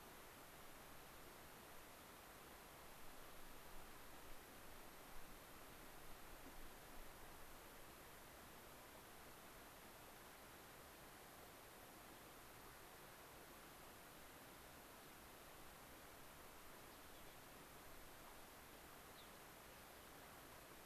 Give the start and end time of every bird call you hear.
19.0s-19.4s: Gray-crowned Rosy-Finch (Leucosticte tephrocotis)

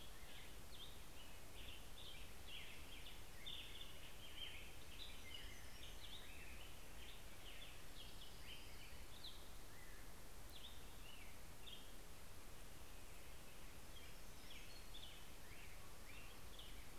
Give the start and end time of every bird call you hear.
0.0s-7.0s: Hermit Warbler (Setophaga occidentalis)
0.0s-17.0s: American Robin (Turdus migratorius)
11.8s-16.7s: Hermit Warbler (Setophaga occidentalis)

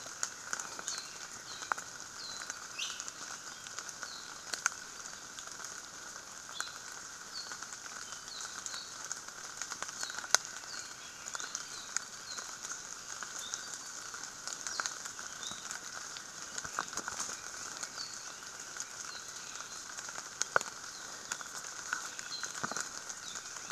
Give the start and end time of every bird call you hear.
0.8s-1.8s: Apapane (Himatione sanguinea)
2.1s-2.6s: Apapane (Himatione sanguinea)
2.7s-3.1s: Iiwi (Drepanis coccinea)
4.0s-4.4s: Apapane (Himatione sanguinea)
6.5s-6.8s: Apapane (Himatione sanguinea)
7.3s-7.6s: Apapane (Himatione sanguinea)
8.2s-9.0s: Apapane (Himatione sanguinea)
9.9s-10.3s: Apapane (Himatione sanguinea)
10.6s-11.0s: Apapane (Himatione sanguinea)
11.3s-12.6s: Apapane (Himatione sanguinea)
13.3s-14.2s: Apapane (Himatione sanguinea)
14.6s-14.9s: Apapane (Himatione sanguinea)
15.3s-15.8s: Apapane (Himatione sanguinea)
17.9s-18.3s: Apapane (Himatione sanguinea)
19.1s-19.4s: Apapane (Himatione sanguinea)
22.2s-22.6s: Apapane (Himatione sanguinea)
23.2s-23.5s: Apapane (Himatione sanguinea)

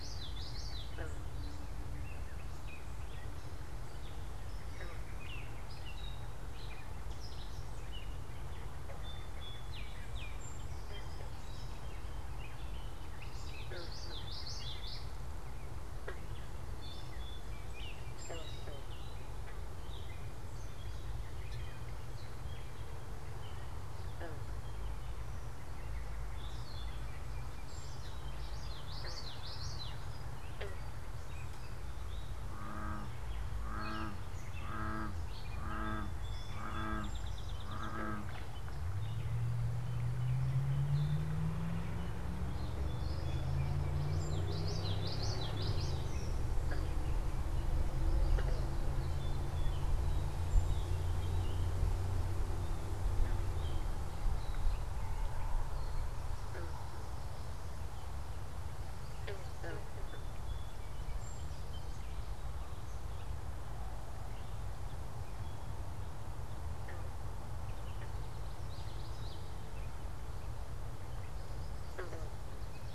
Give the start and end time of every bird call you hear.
0.0s-0.9s: Common Yellowthroat (Geothlypis trichas)
0.0s-55.3s: Gray Catbird (Dumetella carolinensis)
13.1s-15.2s: Common Yellowthroat (Geothlypis trichas)
27.5s-30.2s: Common Yellowthroat (Geothlypis trichas)
35.5s-38.0s: Song Sparrow (Melospiza melodia)
43.8s-46.3s: Common Yellowthroat (Geothlypis trichas)
59.7s-62.0s: Song Sparrow (Melospiza melodia)
68.3s-69.5s: Common Yellowthroat (Geothlypis trichas)

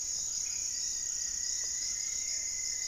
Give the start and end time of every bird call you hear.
0.0s-0.7s: Black-faced Antthrush (Formicarius analis)
0.0s-2.9s: Buff-breasted Wren (Cantorchilus leucotis)
0.0s-2.9s: Goeldi's Antbird (Akletos goeldii)
0.0s-2.9s: Gray-fronted Dove (Leptotila rufaxilla)
0.6s-2.9s: Rufous-fronted Antthrush (Formicarius rufifrons)

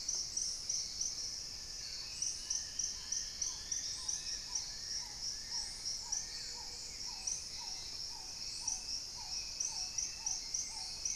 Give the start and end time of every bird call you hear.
0.0s-1.0s: unidentified bird
0.0s-11.2s: Hauxwell's Thrush (Turdus hauxwelli)
0.0s-11.2s: Paradise Tanager (Tangara chilensis)
0.9s-6.8s: Long-billed Woodcreeper (Nasica longirostris)
1.2s-4.9s: Dusky-throated Antshrike (Thamnomanes ardesiacus)
1.8s-11.2s: Black-tailed Trogon (Trogon melanurus)
6.1s-7.1s: Gray-fronted Dove (Leptotila rufaxilla)

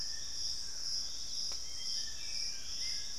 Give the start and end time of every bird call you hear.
0.0s-1.5s: Thrush-like Wren (Campylorhynchus turdinus)
0.0s-3.2s: Dusky-throated Antshrike (Thamnomanes ardesiacus)
1.6s-3.2s: Black-spotted Bare-eye (Phlegopsis nigromaculata)
2.0s-3.2s: Hauxwell's Thrush (Turdus hauxwelli)

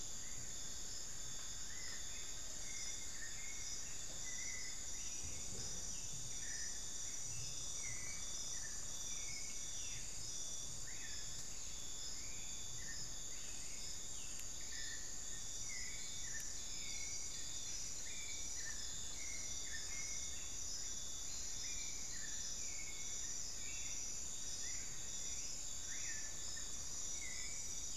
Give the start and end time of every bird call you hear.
0.0s-4.9s: Black-fronted Nunbird (Monasa nigrifrons)
1.6s-2.4s: White-rumped Sirystes (Sirystes albocinereus)

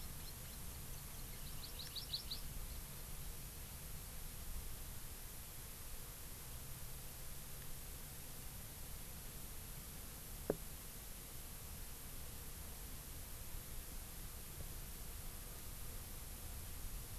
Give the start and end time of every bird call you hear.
1.3s-2.4s: Hawaii Amakihi (Chlorodrepanis virens)

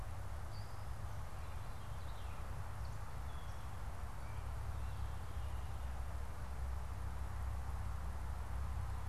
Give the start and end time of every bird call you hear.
1.1s-2.6s: Veery (Catharus fuscescens)
2.7s-4.8s: Gray Catbird (Dumetella carolinensis)

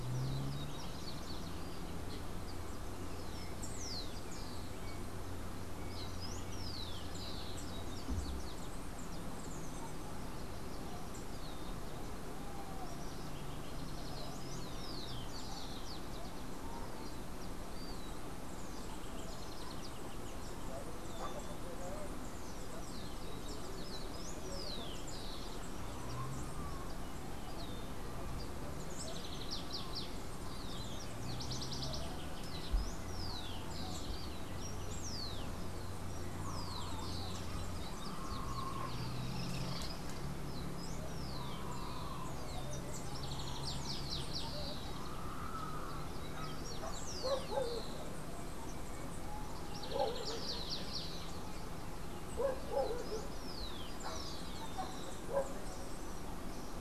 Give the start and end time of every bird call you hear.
0.0s-1.8s: House Wren (Troglodytes aedon)
2.9s-4.8s: Rufous-collared Sparrow (Zonotrichia capensis)
5.7s-7.5s: Rufous-collared Sparrow (Zonotrichia capensis)
12.7s-14.3s: House Wren (Troglodytes aedon)
13.8s-16.0s: Rufous-collared Sparrow (Zonotrichia capensis)
18.5s-21.7s: House Wren (Troglodytes aedon)
22.1s-25.8s: Rufous-collared Sparrow (Zonotrichia capensis)
28.4s-32.7s: House Wren (Troglodytes aedon)
32.3s-37.9s: Rufous-collared Sparrow (Zonotrichia capensis)
38.8s-40.1s: unidentified bird
40.2s-42.9s: Rufous-collared Sparrow (Zonotrichia capensis)
42.6s-45.3s: House Wren (Troglodytes aedon)
45.8s-48.2s: Rufous-collared Sparrow (Zonotrichia capensis)
49.5s-51.7s: House Wren (Troglodytes aedon)
52.5s-55.4s: Rufous-collared Sparrow (Zonotrichia capensis)

